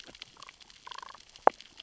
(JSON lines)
{"label": "biophony, damselfish", "recorder": "SoundTrap 600 or HydroMoth"}